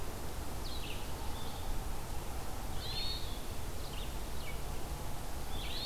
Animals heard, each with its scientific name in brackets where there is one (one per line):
Hermit Thrush (Catharus guttatus)
Red-eyed Vireo (Vireo olivaceus)